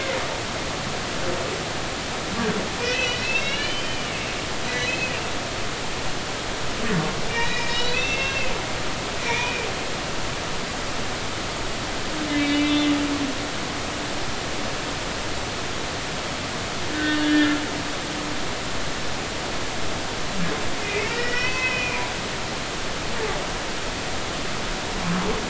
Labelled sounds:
2.8	4.2	humpback whale, 1.8 to 3.9 kHz
4.7	5.1	humpback whale, 1.9 to 4.1 kHz
7.3	8.5	humpback whale, 1.8 to 5.4 kHz
9.1	9.7	humpback whale, 2.1 to 2.6 kHz
12.3	12.9	humpback whale, 2.0 to 3.9 kHz
16.9	17.6	humpback whale, 1.4 to 1.9 kHz
20.8	22.0	humpback whale, 0.96 to 5.6 kHz

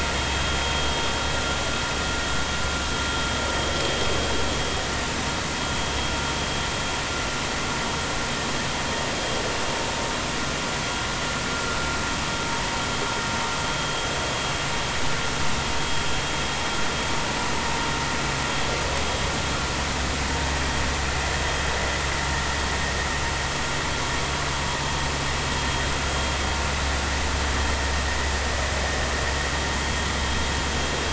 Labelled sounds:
0.2	0.4	vessel noise, 3.2 to 3.3 kHz

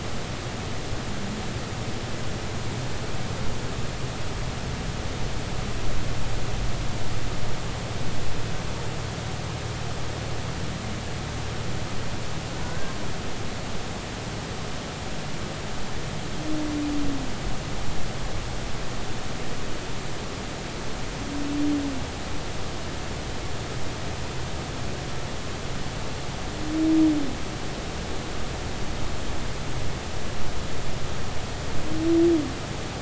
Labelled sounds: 12.6	12.9	humpback whale, 1.4 to 1.7 kHz

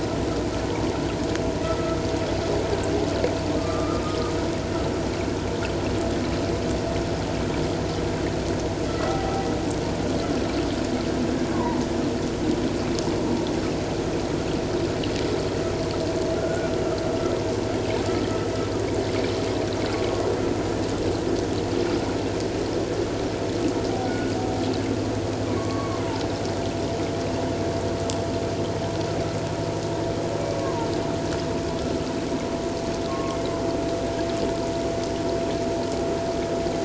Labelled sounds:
1.6	2.0	vessel noise, 1.2 to 1.4 kHz
3.6	4.0	humpback whale, 1.1 to 1.4 kHz
8.9	9.2	vessel noise, 1.2 to 1.4 kHz
9.1	9.3	humpback whale, 0.78 to 0.84 kHz
11.5	11.8	humpback whale, 0.84 to 1.2 kHz
16.4	16.7	humpback whale, 1.3 to 1.5 kHz
24.0	24.3	humpback whale, 1.4 to 1.5 kHz
25.6	26.2	humpback whale, 0.81 to 1.2 kHz
30.6	30.9	humpback whale, 0.84 to 1.1 kHz
33.1	33.4	humpback whale, 1.0 to 1.2 kHz

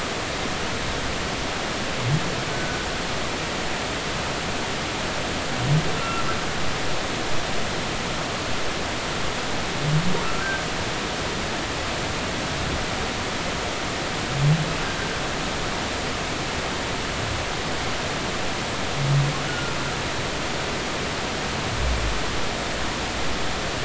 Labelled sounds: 2.5	2.8	humpback whale, 1.4 to 1.5 kHz
6.0	6.2	humpback whale, 1.3 to 2.8 kHz
10.4	10.6	humpback whale, 1.4 to 1.6 kHz
19.5	19.7	humpback whale, 1.3 to 1.5 kHz

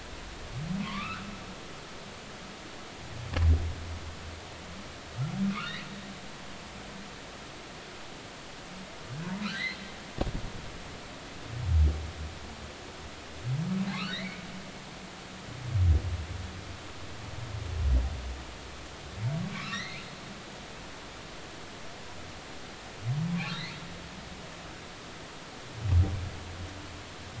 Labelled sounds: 0.8	1.3	humpback whale, 0.93 to 2.7 kHz
5.5	5.8	humpback whale, 1.0 to 1.5 kHz
9.4	9.8	humpback whale, 1.2 to 2.2 kHz
13.9	14.4	humpback whale, 1.8 to 3.0 kHz
19.5	20.0	humpback whale, 1.1 to 4.3 kHz
23.3	23.8	humpback whale, 0.96 to 4.4 kHz

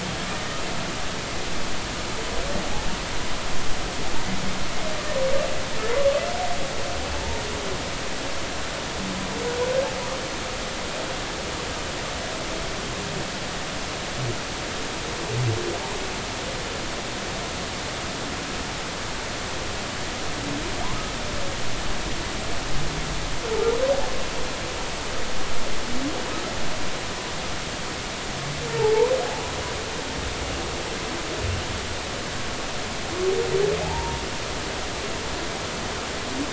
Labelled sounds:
33.8	34.2	humpback whale, 0.80 to 0.99 kHz

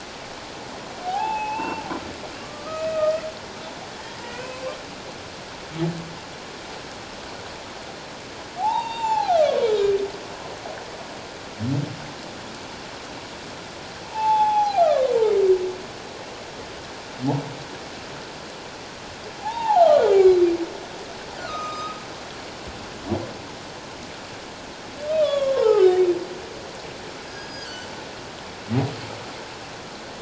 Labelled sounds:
1.0	1.8	humpback whale, 0.78 to 2.8 kHz
2.4	3.2	humpback whale, 1.1 to 2.6 kHz
4.3	4.6	humpback whale, 2.4 to 2.6 kHz
8.6	9.4	humpback whale, 0.78 to 4.7 kHz
14.0	15.1	humpback whale, 0.78 to 3.5 kHz
19.4	20.4	humpback whale, 0.78 to 3.4 kHz
21.4	22.0	humpback whale, 1.2 to 5.1 kHz
25.2	25.9	humpback whale, 0.78 to 5.3 kHz
27.3	27.9	humpback whale, 1.6 to 5.0 kHz

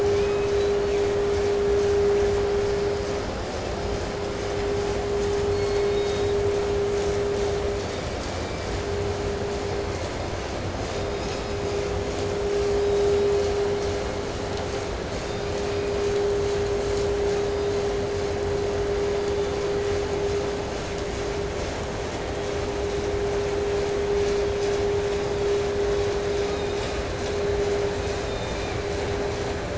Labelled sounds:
0.0	1.2	killer whale, 1.0 to 6.6 kHz
5.3	6.4	killer whale, 1.8 to 6.1 kHz
7.6	9.0	killer whale, 1.9 to 5.3 kHz
10.7	12.1	killer whale, 1.9 to 5.7 kHz
12.7	14.2	killer whale, 1.9 to 5.5 kHz
15.2	16.4	killer whale, 2.1 to 5.1 kHz
16.6	18.0	killer whale, 3.2 to 8.0 kHz
18.9	19.7	killer whale, 3.3 to 5.1 kHz
26.2	27.2	killer whale, southern resident, 0.88 to 4.2 kHz
27.8	29.0	killer whale, 1.7 to 8.0 kHz

